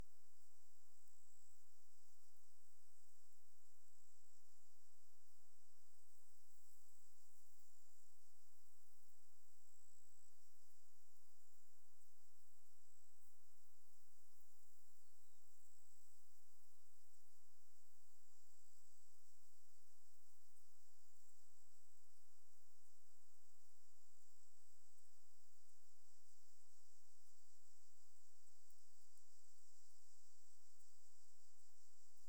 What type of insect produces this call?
orthopteran